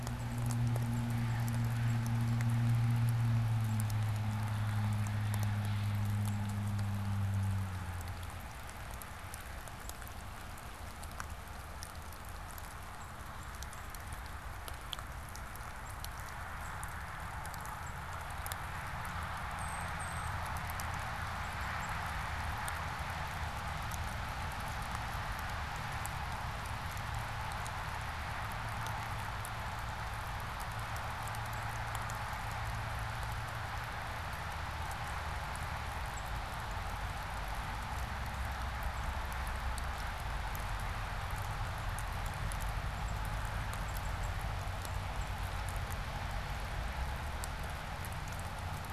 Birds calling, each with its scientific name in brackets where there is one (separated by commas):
Tufted Titmouse (Baeolophus bicolor), unidentified bird